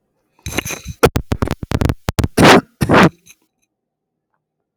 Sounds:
Cough